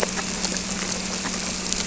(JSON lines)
{"label": "anthrophony, boat engine", "recorder": "SoundTrap 300"}